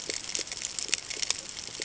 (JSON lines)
{"label": "ambient", "recorder": "HydroMoth"}